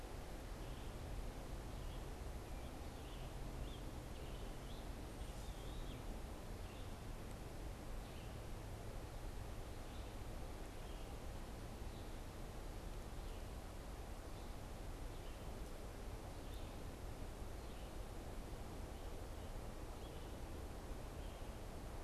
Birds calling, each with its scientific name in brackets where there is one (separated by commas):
Scarlet Tanager (Piranga olivacea)